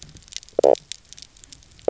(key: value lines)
label: biophony, knock croak
recorder: SoundTrap 300